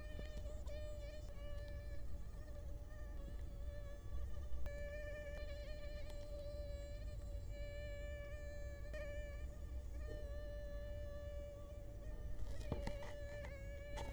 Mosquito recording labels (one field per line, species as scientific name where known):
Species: Culex quinquefasciatus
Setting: cup